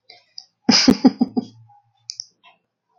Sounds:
Laughter